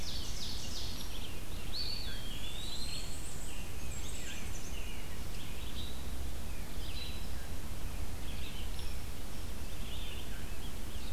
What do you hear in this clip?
Ovenbird, Red-eyed Vireo, Eastern Wood-Pewee, Rose-breasted Grosbeak, Black-and-white Warbler